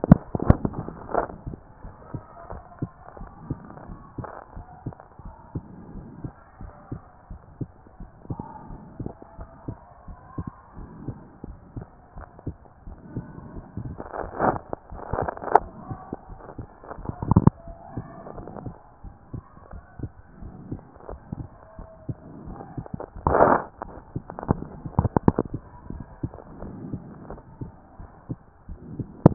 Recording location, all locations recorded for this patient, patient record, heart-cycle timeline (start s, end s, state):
pulmonary valve (PV)
pulmonary valve (PV)+tricuspid valve (TV)+mitral valve (MV)
#Age: nan
#Sex: Female
#Height: nan
#Weight: nan
#Pregnancy status: True
#Murmur: Absent
#Murmur locations: nan
#Most audible location: nan
#Systolic murmur timing: nan
#Systolic murmur shape: nan
#Systolic murmur grading: nan
#Systolic murmur pitch: nan
#Systolic murmur quality: nan
#Diastolic murmur timing: nan
#Diastolic murmur shape: nan
#Diastolic murmur grading: nan
#Diastolic murmur pitch: nan
#Diastolic murmur quality: nan
#Outcome: Normal
#Campaign: 2014 screening campaign
0.00	1.84	unannotated
1.84	1.94	S1
1.94	2.12	systole
2.12	2.22	S2
2.22	2.52	diastole
2.52	2.62	S1
2.62	2.80	systole
2.80	2.90	S2
2.90	3.20	diastole
3.20	3.30	S1
3.30	3.48	systole
3.48	3.58	S2
3.58	3.88	diastole
3.88	3.98	S1
3.98	4.18	systole
4.18	4.26	S2
4.26	4.56	diastole
4.56	4.66	S1
4.66	4.84	systole
4.84	4.96	S2
4.96	5.24	diastole
5.24	5.34	S1
5.34	5.54	systole
5.54	5.64	S2
5.64	5.94	diastole
5.94	6.06	S1
6.06	6.22	systole
6.22	6.32	S2
6.32	6.60	diastole
6.60	6.72	S1
6.72	6.90	systole
6.90	7.02	S2
7.02	7.30	diastole
7.30	7.40	S1
7.40	7.60	systole
7.60	7.70	S2
7.70	8.00	diastole
8.00	8.10	S1
8.10	8.28	systole
8.28	8.38	S2
8.38	8.70	diastole
8.70	8.80	S1
8.80	9.00	systole
9.00	9.10	S2
9.10	9.38	diastole
9.38	9.48	S1
9.48	9.66	systole
9.66	9.78	S2
9.78	10.08	diastole
10.08	10.18	S1
10.18	10.36	systole
10.36	10.46	S2
10.46	10.78	diastole
10.78	10.90	S1
10.90	11.06	systole
11.06	11.16	S2
11.16	11.46	diastole
11.46	11.58	S1
11.58	11.76	systole
11.76	11.86	S2
11.86	12.16	diastole
12.16	12.28	S1
12.28	12.46	systole
12.46	12.56	S2
12.56	12.86	diastole
12.86	12.98	S1
12.98	13.14	systole
13.14	13.24	S2
13.24	13.54	diastole
13.54	29.34	unannotated